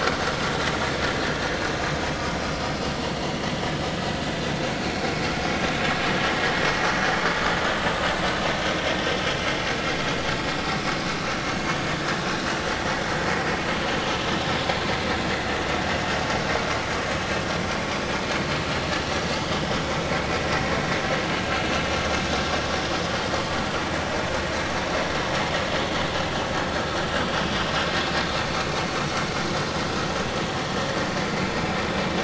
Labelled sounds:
4.2	4.5	vessel noise, 3.4 to 3.6 kHz
28.6	28.8	vessel noise, 2.1 to 2.5 kHz

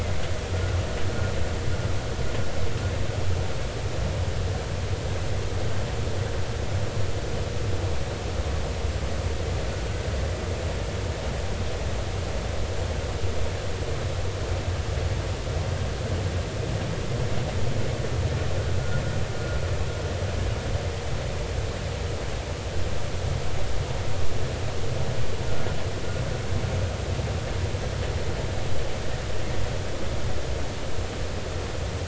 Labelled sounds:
0.5	0.8	vessel noise, 1.3 to 1.5 kHz

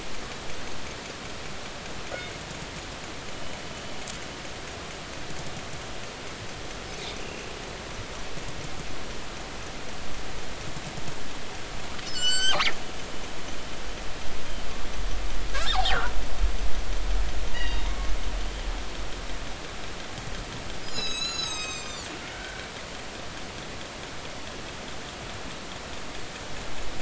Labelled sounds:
3.3	3.6	killer whale, northern resident, G clan, 2.9 to 3.0 kHz
7.2	7.5	killer whale, northern resident, G clan, 2.6 to 2.9 kHz
12.1	12.6	killer whale, northern resident, G clan, GG subclan, call N28, 1.4 to 7.8 kHz
15.5	16.1	killer whale, northern resident, G clan, call N25, 0.80 to 2.0 kHz
17.5	17.9	killer whale, northern resident, G clan, call N24ii, 1.8 to 4.9 kHz
20.8	22.1	killer whale, northern resident, G clan, 1.2 to 8.0 kHz
22.3	22.7	killer whale, northern resident, G clan, call N40, 1.4 to 1.6 kHz

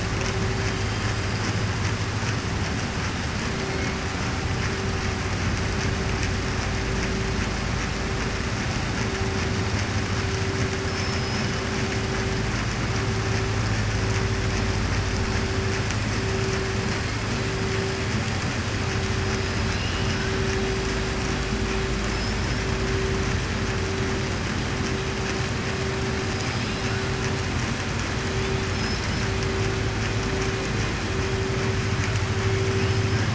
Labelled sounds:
10.8	11.5	killer whale, southern resident, 5.1 to 6.2 kHz
19.6	20.3	killer whale, southern resident, 1.0 to 5.1 kHz
22.0	22.6	killer whale, southern resident, 5.1 to 5.6 kHz
28.7	29.3	killer whale, southern resident, 4.3 to 5.5 kHz

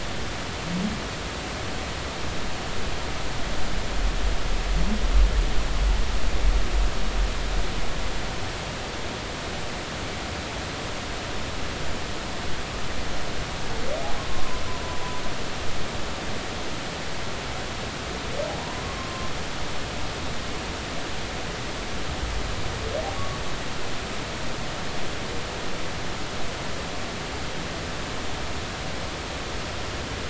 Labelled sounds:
14.3	14.6	humpback whale, 0.96 to 1.2 kHz
18.6	19.3	humpback whale, 0.93 to 1.1 kHz
23.1	23.4	humpback whale, 1.1 to 1.2 kHz

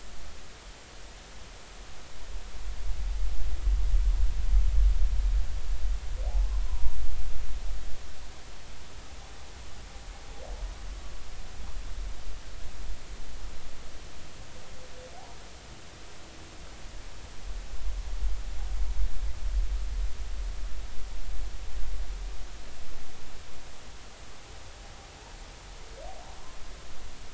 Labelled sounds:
6.7	7.0	humpback whale, 0.90 to 1.1 kHz

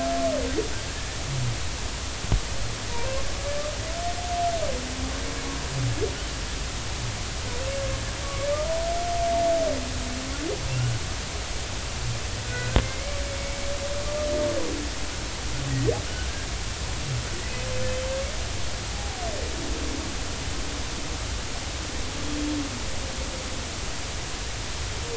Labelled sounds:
12.5	13.2	humpback whale, 1.4 to 2.4 kHz
18.9	19.2	humpback whale, 0.80 to 0.86 kHz

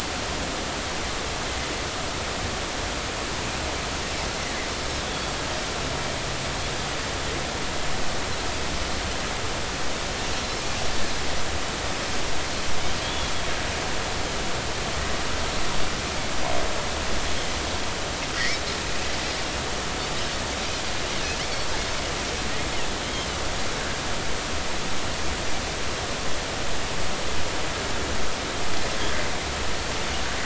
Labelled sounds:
5.0	5.3	Pacific white-sided dolphin, 3.3 to 3.5 kHz
13.0	13.3	Pacific white-sided dolphin, 3.1 to 3.6 kHz
18.4	19.1	Pacific white-sided dolphin, 1.8 to 2.7 kHz
23.0	23.3	Pacific white-sided dolphin, 3.0 to 3.3 kHz

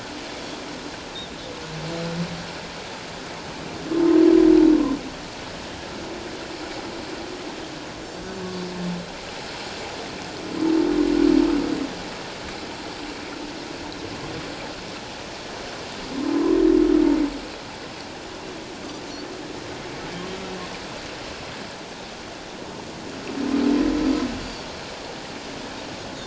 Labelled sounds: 16.3	16.6	humpback whale, 0.97 to 1.1 kHz
24.4	24.7	Pacific white-sided dolphin, 4.4 to 4.7 kHz

